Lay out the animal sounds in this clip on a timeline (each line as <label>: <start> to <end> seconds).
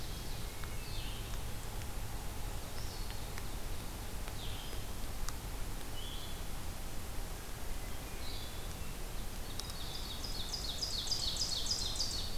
Ovenbird (Seiurus aurocapilla): 0.0 to 0.7 seconds
Blue-headed Vireo (Vireo solitarius): 0.0 to 8.7 seconds
Hermit Thrush (Catharus guttatus): 7.5 to 8.4 seconds
Ovenbird (Seiurus aurocapilla): 9.7 to 12.3 seconds